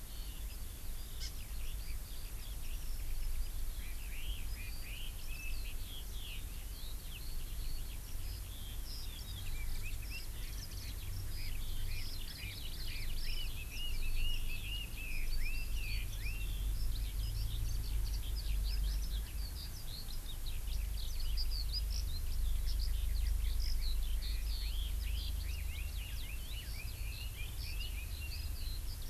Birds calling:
Hawaii Amakihi (Chlorodrepanis virens)
Eurasian Skylark (Alauda arvensis)
Red-billed Leiothrix (Leiothrix lutea)

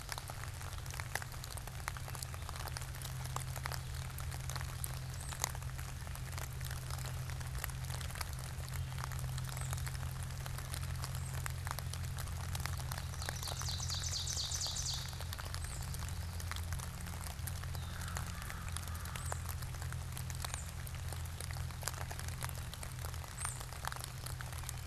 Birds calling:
Tufted Titmouse (Baeolophus bicolor)
Ovenbird (Seiurus aurocapilla)

